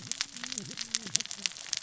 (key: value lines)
label: biophony, cascading saw
recorder: SoundTrap 600 or HydroMoth